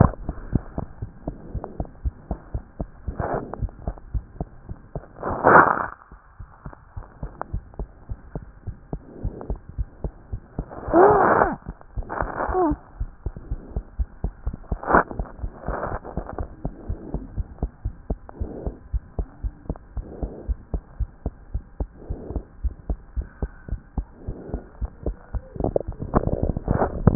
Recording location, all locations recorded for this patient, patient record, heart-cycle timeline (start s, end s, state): aortic valve (AV)
aortic valve (AV)+pulmonary valve (PV)+mitral valve (MV)
#Age: Child
#Sex: Female
#Height: 83.0 cm
#Weight: 11.1 kg
#Pregnancy status: False
#Murmur: Absent
#Murmur locations: nan
#Most audible location: nan
#Systolic murmur timing: nan
#Systolic murmur shape: nan
#Systolic murmur grading: nan
#Systolic murmur pitch: nan
#Systolic murmur quality: nan
#Diastolic murmur timing: nan
#Diastolic murmur shape: nan
#Diastolic murmur grading: nan
#Diastolic murmur pitch: nan
#Diastolic murmur quality: nan
#Outcome: Normal
#Campaign: 2014 screening campaign
0.00	18.80	unannotated
18.80	18.92	diastole
18.92	19.04	S1
19.04	19.18	systole
19.18	19.26	S2
19.26	19.44	diastole
19.44	19.54	S1
19.54	19.68	systole
19.68	19.78	S2
19.78	19.96	diastole
19.96	20.06	S1
20.06	20.22	systole
20.22	20.30	S2
20.30	20.48	diastole
20.48	20.58	S1
20.58	20.72	systole
20.72	20.82	S2
20.82	21.00	diastole
21.00	21.10	S1
21.10	21.24	systole
21.24	21.34	S2
21.34	21.54	diastole
21.54	21.64	S1
21.64	21.78	systole
21.78	21.88	S2
21.88	22.10	diastole
22.10	22.20	S1
22.20	22.34	systole
22.34	22.44	S2
22.44	22.55	diastole
22.55	27.15	unannotated